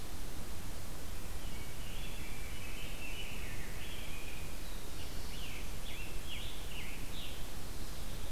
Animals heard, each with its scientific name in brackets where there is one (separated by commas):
Rose-breasted Grosbeak (Pheucticus ludovicianus), Scarlet Tanager (Piranga olivacea), Black-throated Blue Warbler (Setophaga caerulescens)